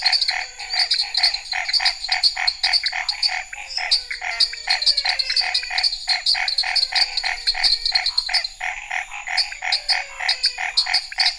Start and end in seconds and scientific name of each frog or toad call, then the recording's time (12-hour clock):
0.0	11.3	Boana raniceps
0.0	11.3	Dendropsophus nanus
0.0	11.3	Physalaemus albonotatus
0.0	11.3	Scinax fuscovarius
4.5	4.6	Leptodactylus podicipinus
10.4	10.6	Leptodactylus podicipinus
11.0	11.2	Leptodactylus podicipinus
8:45pm